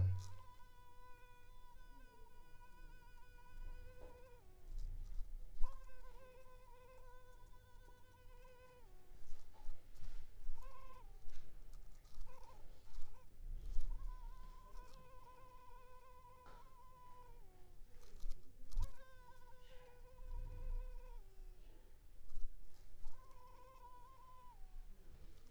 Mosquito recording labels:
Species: Culex pipiens complex; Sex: female; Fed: unfed; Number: one; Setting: cup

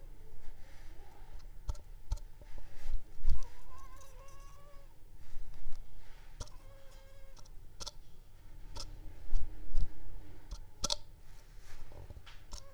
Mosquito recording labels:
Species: Anopheles arabiensis; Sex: female; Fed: unfed; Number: one; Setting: cup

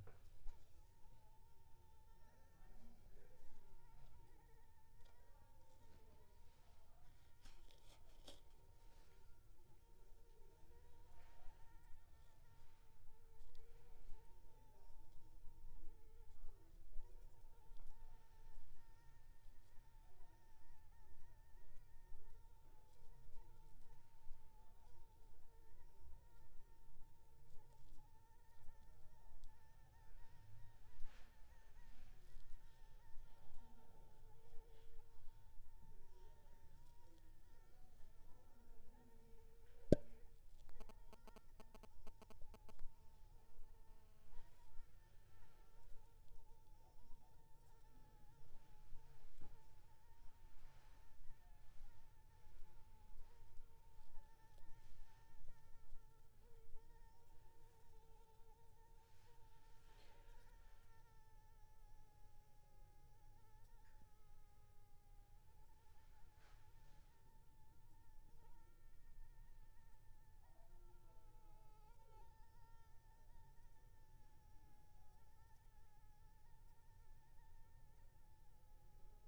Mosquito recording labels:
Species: Anopheles arabiensis; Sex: female; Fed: unfed; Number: one; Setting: cup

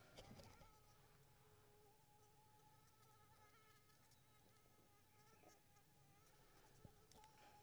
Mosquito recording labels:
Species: Anopheles squamosus; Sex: female; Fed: unfed; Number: one; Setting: cup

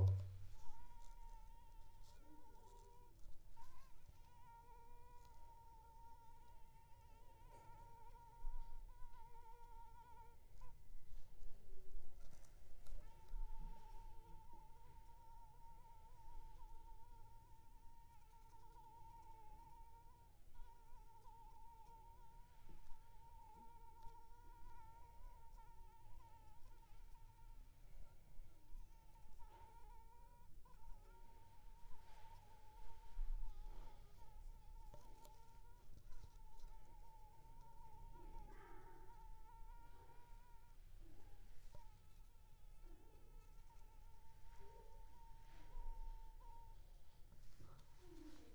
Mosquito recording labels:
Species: Anopheles arabiensis; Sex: female; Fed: unfed; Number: one; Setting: cup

